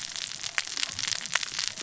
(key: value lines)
label: biophony, cascading saw
recorder: SoundTrap 600 or HydroMoth